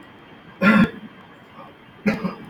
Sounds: Sniff